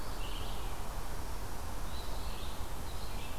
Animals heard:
Red-eyed Vireo (Vireo olivaceus), Eastern Phoebe (Sayornis phoebe)

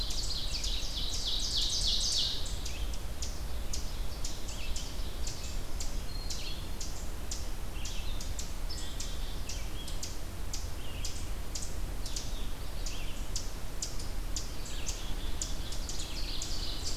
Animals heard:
Red-eyed Vireo (Vireo olivaceus), Ovenbird (Seiurus aurocapilla), Black-throated Green Warbler (Setophaga virens), Black-capped Chickadee (Poecile atricapillus)

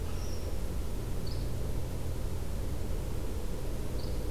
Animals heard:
Yellow-bellied Flycatcher (Empidonax flaviventris), Red Squirrel (Tamiasciurus hudsonicus)

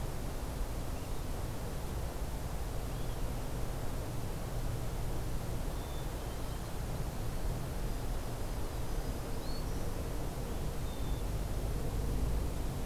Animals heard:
Black-throated Green Warbler (Setophaga virens), Black-capped Chickadee (Poecile atricapillus)

